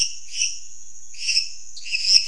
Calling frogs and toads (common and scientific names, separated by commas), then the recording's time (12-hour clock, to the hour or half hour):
lesser tree frog (Dendropsophus minutus)
10pm